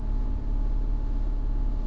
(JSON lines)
{"label": "anthrophony, boat engine", "recorder": "SoundTrap 300"}